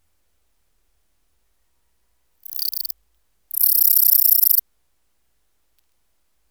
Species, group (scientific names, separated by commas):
Pholidoptera littoralis, Orthoptera